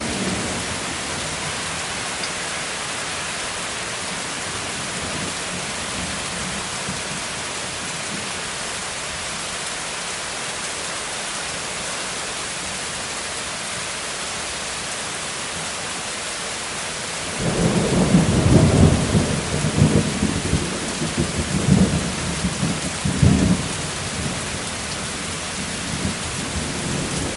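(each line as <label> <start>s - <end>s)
A steady rainstorm produces continuous raindrop sounds with occasional wind noise. 0.0s - 27.4s
A single loud thunderclap produces a deep, rumbling sound that gradually fades away during a rainstorm. 17.3s - 26.3s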